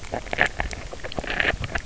{"label": "biophony, grazing", "recorder": "SoundTrap 300"}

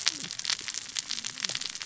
{"label": "biophony, cascading saw", "recorder": "SoundTrap 600 or HydroMoth"}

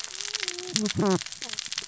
{"label": "biophony, cascading saw", "recorder": "SoundTrap 600 or HydroMoth"}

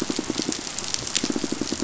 {"label": "biophony, pulse", "recorder": "SoundTrap 500"}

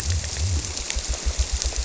{"label": "biophony", "recorder": "SoundTrap 300"}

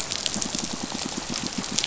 {"label": "biophony, pulse", "recorder": "SoundTrap 500"}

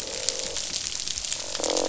{"label": "biophony, croak", "recorder": "SoundTrap 500"}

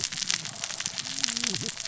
{"label": "biophony, cascading saw", "recorder": "SoundTrap 600 or HydroMoth"}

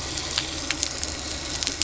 {"label": "anthrophony, boat engine", "recorder": "SoundTrap 300"}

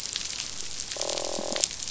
{"label": "biophony, croak", "recorder": "SoundTrap 500"}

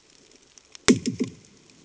{"label": "anthrophony, bomb", "recorder": "HydroMoth"}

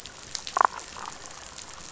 {"label": "biophony, damselfish", "recorder": "SoundTrap 500"}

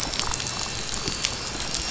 {"label": "anthrophony, boat engine", "recorder": "SoundTrap 500"}
{"label": "biophony", "recorder": "SoundTrap 500"}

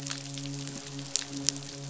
{"label": "biophony, midshipman", "recorder": "SoundTrap 500"}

